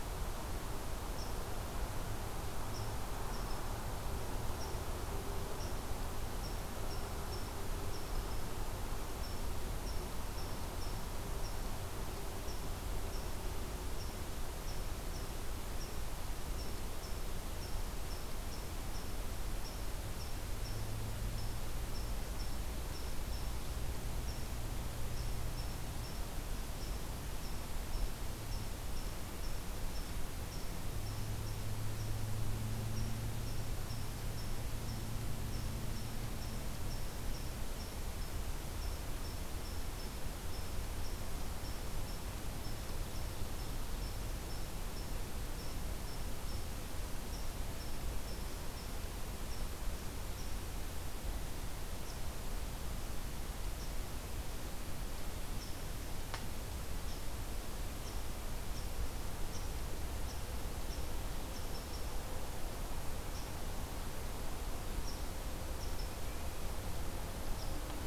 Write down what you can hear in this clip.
Red Squirrel